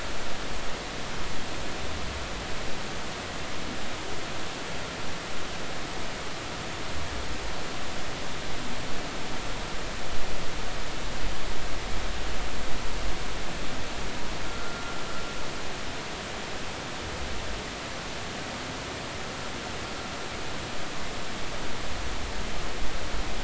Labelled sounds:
14.5	15.0	humpback whale, 1.3 to 1.4 kHz

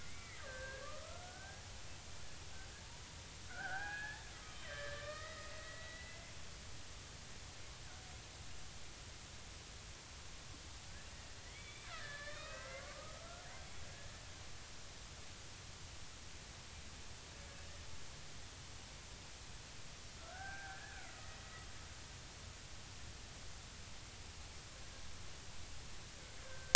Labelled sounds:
0.0	1.6	killer whale, Bigg's (transient), 1.1 to 2.4 kHz
3.5	6.3	killer whale, Bigg's (transient), 0.80 to 5.1 kHz
11.4	12.8	killer whale, Bigg's (transient), 1.1 to 4.4 kHz
13.7	14.2	killer whale, Bigg's (transient), 1.1 to 1.8 kHz
20.2	21.5	killer whale, Bigg's (transient), 0.80 to 2.0 kHz
26.5	26.7	killer whale, Bigg's (transient), 1.5 to 1.7 kHz

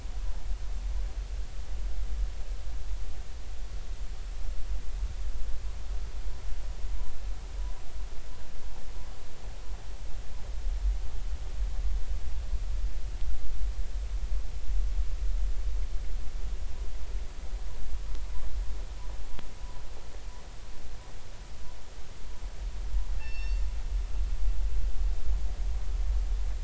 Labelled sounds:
23.2	23.6	killer whale, northern resident, G clan, call N24ii, 1.7 to 5.5 kHz

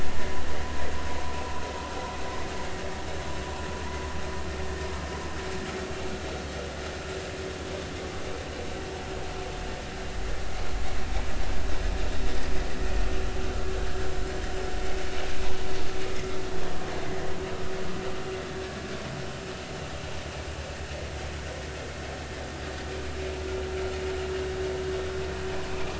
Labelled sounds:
16.1	16.4	vessel noise, 2.0 to 2.2 kHz

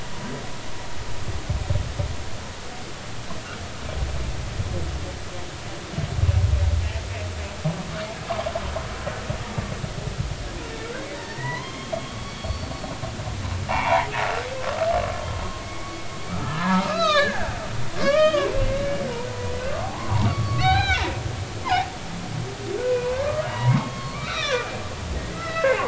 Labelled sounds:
11.1	12.7	humpback whale, 0.86 to 4.6 kHz
13.7	14.1	humpback whale, 0.80 to 2.8 kHz
15.6	17.5	humpback whale, 0.80 to 5.4 kHz
18.0	21.0	humpback whale, 0.80 to 4.2 kHz
22.9	24.7	humpback whale, 0.90 to 5.9 kHz
25.3	25.8	humpback whale, 1.2 to 2.8 kHz

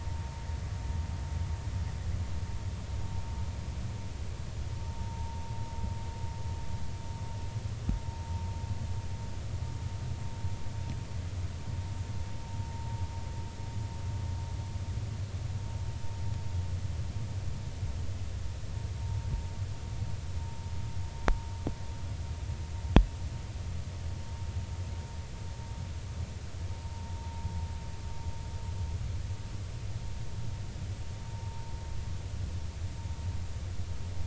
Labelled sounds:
4.8	5.4	vessel noise, 0.86 to 0.96 kHz
31.3	31.6	vessel noise, 0.86 to 0.96 kHz

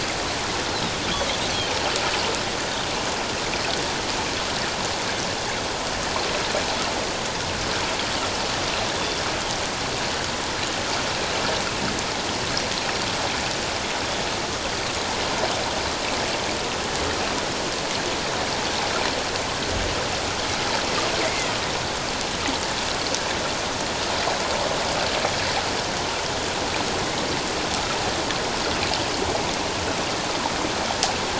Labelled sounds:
9.0	9.2	Pacific white-sided dolphin, 3.4 to 3.6 kHz
21.2	21.5	Pacific white-sided dolphin, 1.9 to 2.2 kHz

